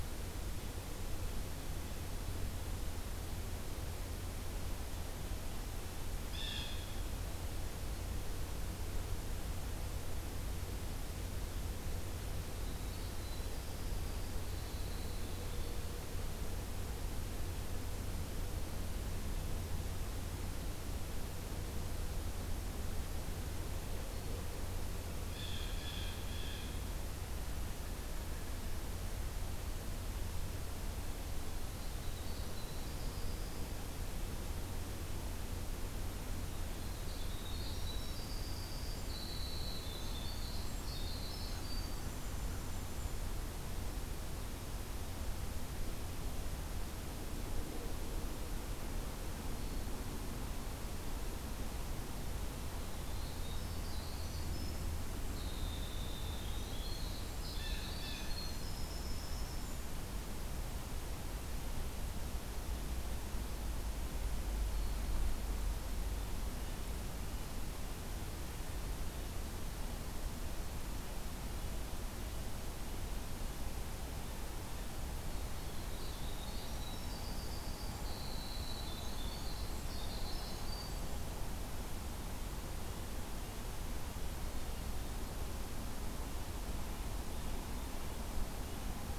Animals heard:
Winter Wren (Troglodytes hiemalis), Blue Jay (Cyanocitta cristata)

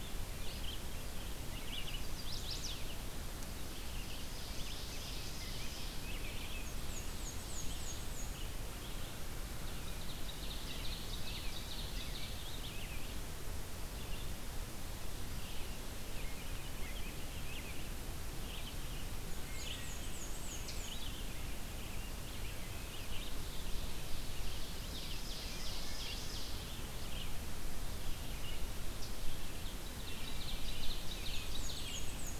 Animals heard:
Ovenbird (Seiurus aurocapilla), Eastern Chipmunk (Tamias striatus), Black-and-white Warbler (Mniotilta varia), Chestnut-sided Warbler (Setophaga pensylvanica), Red-eyed Vireo (Vireo olivaceus), Wood Thrush (Hylocichla mustelina)

